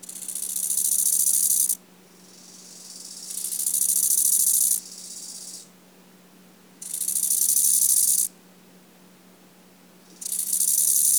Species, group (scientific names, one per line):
Chorthippus eisentrauti
Orthoptera